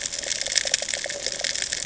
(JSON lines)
{"label": "ambient", "recorder": "HydroMoth"}